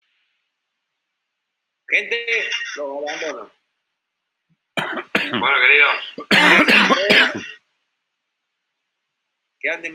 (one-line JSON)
{"expert_labels": [{"quality": "good", "cough_type": "wet", "dyspnea": false, "wheezing": false, "stridor": false, "choking": false, "congestion": false, "nothing": true, "diagnosis": "lower respiratory tract infection", "severity": "mild"}], "age": 42, "gender": "male", "respiratory_condition": true, "fever_muscle_pain": false, "status": "COVID-19"}